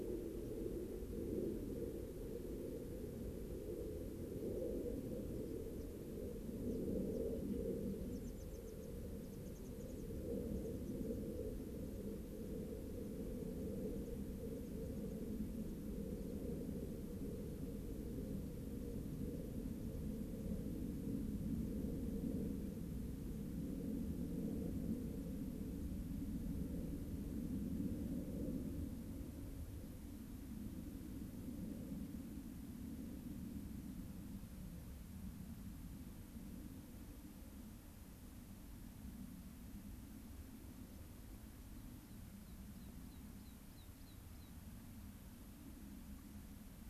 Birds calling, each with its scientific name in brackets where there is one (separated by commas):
White-crowned Sparrow (Zonotrichia leucophrys), American Pipit (Anthus rubescens)